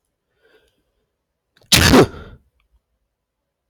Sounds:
Sneeze